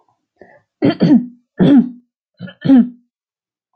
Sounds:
Throat clearing